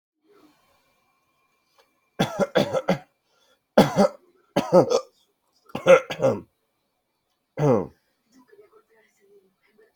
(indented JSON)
{
  "expert_labels": [
    {
      "quality": "ok",
      "cough_type": "unknown",
      "dyspnea": false,
      "wheezing": false,
      "stridor": false,
      "choking": false,
      "congestion": false,
      "nothing": true,
      "diagnosis": "healthy cough",
      "severity": "pseudocough/healthy cough"
    }
  ],
  "age": 44,
  "gender": "male",
  "respiratory_condition": true,
  "fever_muscle_pain": false,
  "status": "healthy"
}